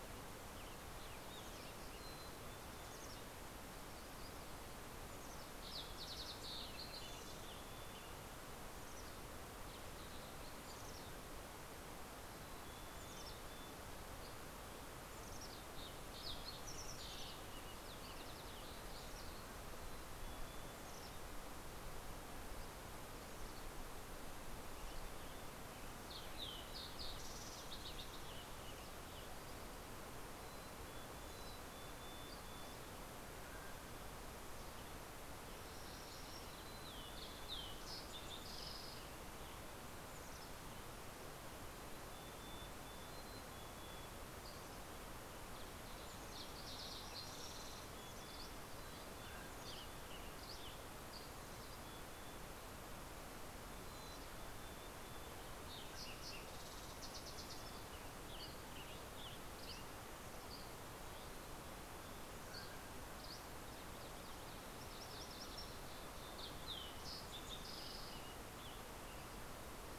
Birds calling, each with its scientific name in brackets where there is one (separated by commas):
Mountain Chickadee (Poecile gambeli), Fox Sparrow (Passerella iliaca), MacGillivray's Warbler (Geothlypis tolmiei), Western Tanager (Piranga ludoviciana), Dusky Flycatcher (Empidonax oberholseri), Mountain Quail (Oreortyx pictus), Spotted Towhee (Pipilo maculatus), Yellow-rumped Warbler (Setophaga coronata)